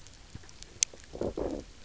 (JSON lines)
{"label": "biophony, low growl", "recorder": "SoundTrap 300"}